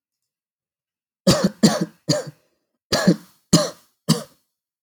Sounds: Cough